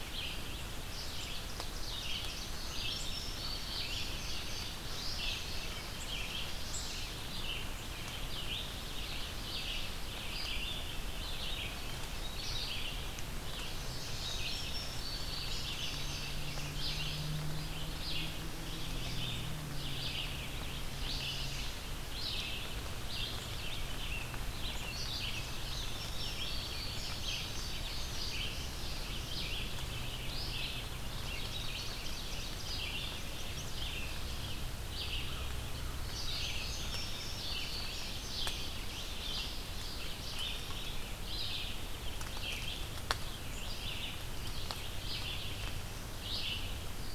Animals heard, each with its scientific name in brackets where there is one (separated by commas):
Ovenbird (Seiurus aurocapilla), Red-eyed Vireo (Vireo olivaceus), Indigo Bunting (Passerina cyanea)